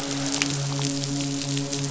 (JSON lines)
{"label": "biophony, midshipman", "recorder": "SoundTrap 500"}